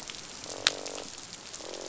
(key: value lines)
label: biophony, croak
recorder: SoundTrap 500